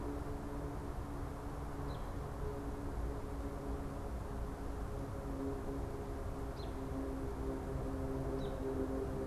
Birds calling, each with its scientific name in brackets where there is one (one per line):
American Robin (Turdus migratorius)